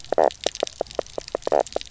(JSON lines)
{"label": "biophony, knock croak", "recorder": "SoundTrap 300"}